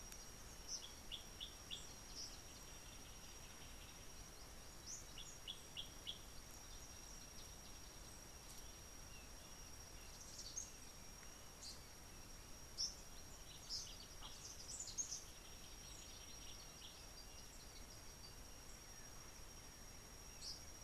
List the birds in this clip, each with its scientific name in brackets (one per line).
Gray Apalis (Apalis cinerea)
Eastern Double-collared Sunbird (Cinnyris mediocris)